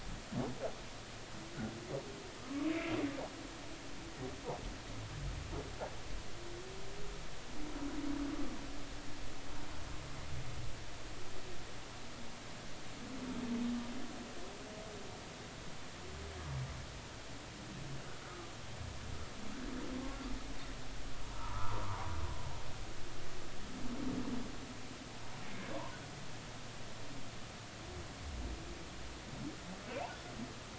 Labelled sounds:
2.7	2.9	humpback whale, 2.0 to 2.4 kHz
21.2	22.0	humpback whale, 0.86 to 1.4 kHz

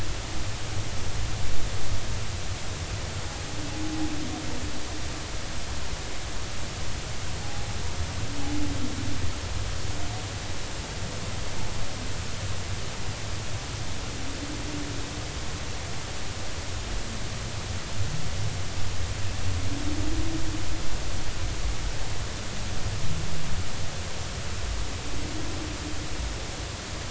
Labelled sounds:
7.4	7.7	humpback whale, 0.80 to 0.86 kHz

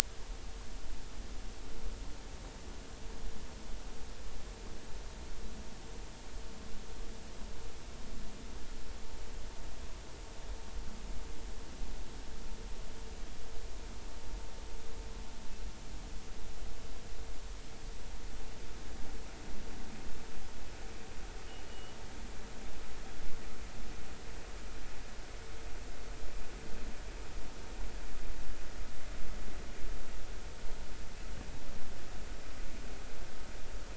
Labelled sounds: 21.7	22.0	killer whale, offshore, 2.8 to 3.0 kHz

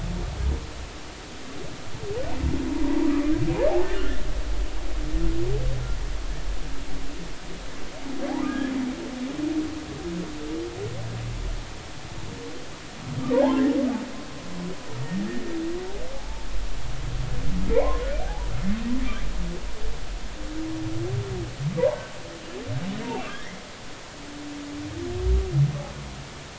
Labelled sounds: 4.0	4.2	humpback whale, 1.3 to 1.6 kHz
8.5	8.7	humpback whale, 1.5 to 1.8 kHz
16.1	16.5	humpback whale, 0.80 to 0.93 kHz
17.7	18.5	humpback whale, 0.80 to 1.1 kHz
23.3	23.6	humpback whale, 1.5 to 2.1 kHz

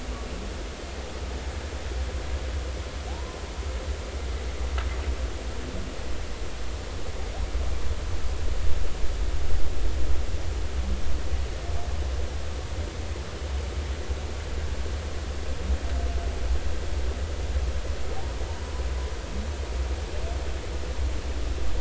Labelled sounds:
3.1	3.4	humpback whale, 0.80 to 1.1 kHz

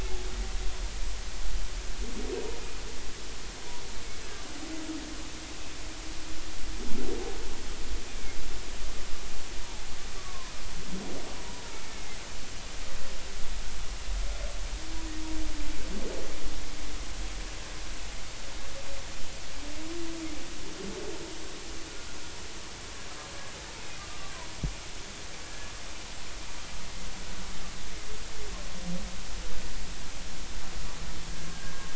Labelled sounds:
8.1	8.4	humpback whale, 2.1 to 2.5 kHz
10.2	10.5	humpback whale, 0.96 to 1.3 kHz
11.9	12.2	humpback whale, 2.0 to 2.2 kHz
25.5	25.7	humpback whale, 1.6 to 1.7 kHz
31.5	31.9	humpback whale, 1.5 to 1.7 kHz

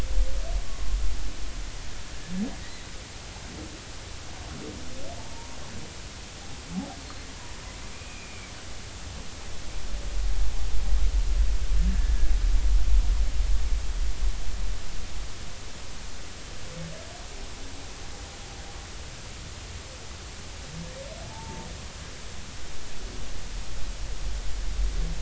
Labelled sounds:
2.6	2.9	humpback whale, 1.9 to 2.1 kHz
7.9	8.5	humpback whale, 2.2 to 2.6 kHz
11.9	12.1	humpback whale, 1.7 to 1.9 kHz
21.2	21.7	humpback whale, 0.80 to 0.96 kHz

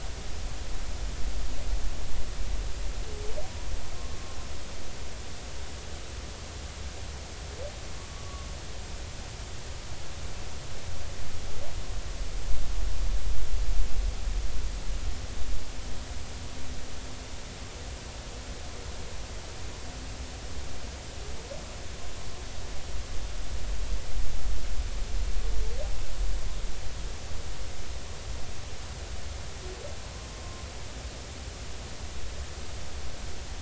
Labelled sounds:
4.1	4.4	humpback whale, 1.0 to 1.2 kHz

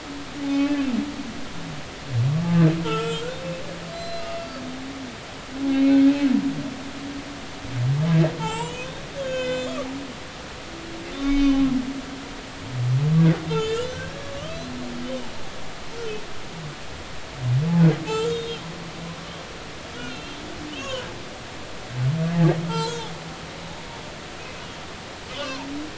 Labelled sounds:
0.4	0.8	humpback whale, 0.80 to 2.7 kHz
2.8	4.2	humpback whale, 1.2 to 4.1 kHz
5.6	6.0	humpback whale, 0.80 to 2.2 kHz
8.4	8.9	humpback whale, 0.80 to 7.8 kHz
9.2	9.8	humpback whale, 1.5 to 7.4 kHz
11.1	11.6	humpback whale, 2.2 to 4.8 kHz
13.5	14.1	humpback whale, 1.5 to 7.0 kHz
14.4	14.8	humpback whale, 2.8 to 4.2 kHz
18.1	18.6	humpback whale, 1.2 to 3.8 kHz
20.0	21.1	humpback whale, 0.96 to 3.4 kHz
22.7	23.1	humpback whale, 0.80 to 7.8 kHz
25.3	25.7	humpback whale, 0.83 to 1.2 kHz

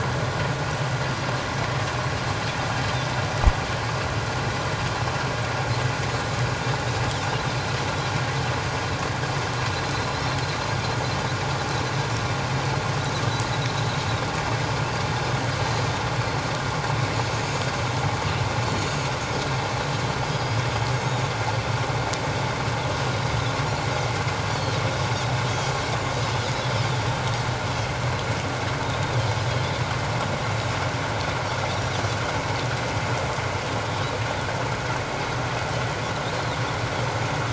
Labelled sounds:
18.7	18.9	Pacific white-sided dolphin, 4.3 to 4.6 kHz
20.2	20.6	Pacific white-sided dolphin, 4.8 to 5.2 kHz
21.0	21.3	Pacific white-sided dolphin, 6.3 to 6.9 kHz
24.5	24.8	Pacific white-sided dolphin, 4.1 to 4.8 kHz
26.8	27.9	Pacific white-sided dolphin, 3.1 to 4.8 kHz
28.8	29.1	Pacific white-sided dolphin, 3.4 to 3.8 kHz
30.4	30.7	Pacific white-sided dolphin, 6.7 to 7.1 kHz

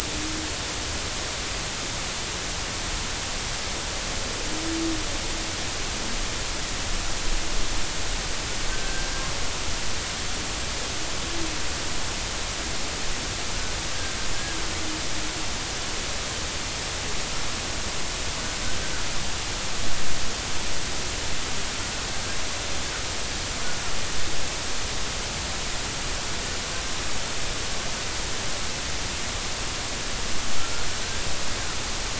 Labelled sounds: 8.7	9.1	killer whale, 1.5 to 1.7 kHz

